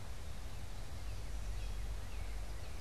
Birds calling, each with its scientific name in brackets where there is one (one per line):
Northern Cardinal (Cardinalis cardinalis)